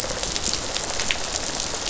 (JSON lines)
{"label": "biophony, rattle response", "recorder": "SoundTrap 500"}